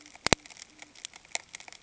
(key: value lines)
label: ambient
recorder: HydroMoth